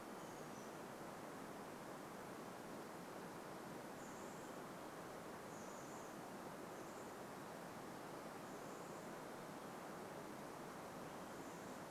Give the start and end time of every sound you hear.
[0, 2] Chestnut-backed Chickadee call
[4, 12] Chestnut-backed Chickadee call

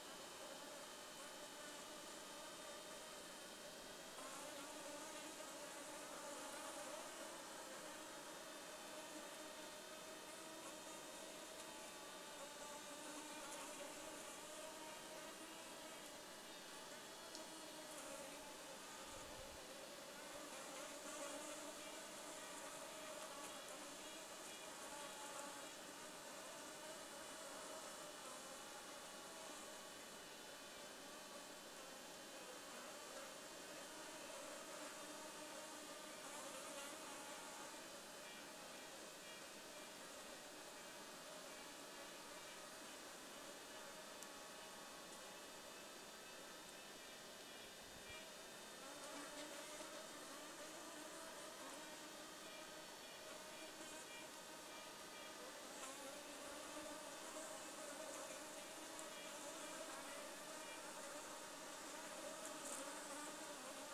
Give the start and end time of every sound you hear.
[0, 64] insect buzz
[14, 16] Red-breasted Nuthatch song
[20, 26] Red-breasted Nuthatch song
[36, 40] Red-breasted Nuthatch song
[42, 44] Red-breasted Nuthatch song
[46, 50] Red-breasted Nuthatch song
[52, 62] Red-breasted Nuthatch song

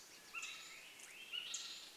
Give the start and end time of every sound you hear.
[0, 2] Swainson's Thrush call
[0, 2] unidentified bird chip note

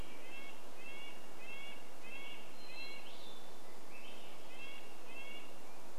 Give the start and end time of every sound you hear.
[0, 6] Red-breasted Nuthatch song
[2, 4] Hermit Thrush song
[2, 6] Swainson's Thrush song

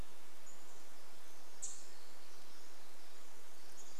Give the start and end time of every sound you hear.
[0, 2] unidentified bird chip note
[0, 4] Pacific Wren song

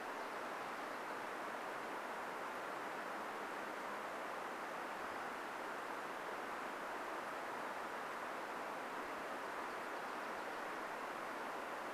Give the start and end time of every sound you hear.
[0, 2] warbler song

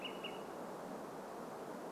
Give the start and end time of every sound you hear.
[0, 2] Olive-sided Flycatcher call

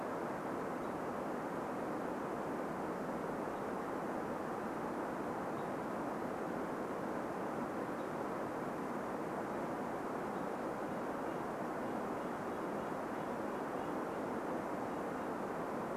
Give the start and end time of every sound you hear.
[0, 6] unidentified bird chip note
[10, 16] Red-breasted Nuthatch song

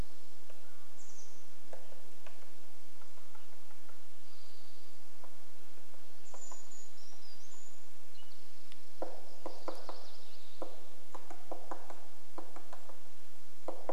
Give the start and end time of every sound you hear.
[0, 2] Chestnut-backed Chickadee call
[0, 2] Mountain Quail call
[0, 14] woodpecker drumming
[4, 6] unidentified sound
[6, 8] Brown Creeper song
[6, 8] Chestnut-backed Chickadee call
[8, 10] Spotted Towhee song
[8, 10] Townsend's Solitaire call
[8, 12] MacGillivray's Warbler song

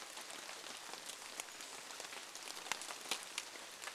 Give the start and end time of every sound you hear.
[0, 4] rain

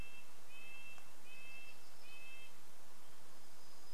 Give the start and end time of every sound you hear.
[0, 4] Red-breasted Nuthatch song
[2, 4] warbler song

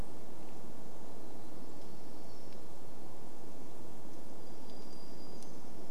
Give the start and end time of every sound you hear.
[0, 6] warbler song

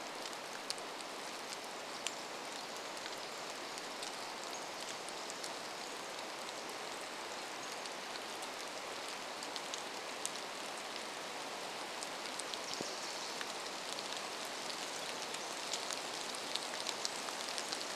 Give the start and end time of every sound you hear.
[0, 10] Pacific Wren song
[0, 18] rain
[4, 8] Pacific-slope Flycatcher call
[12, 14] Wilson's Warbler song

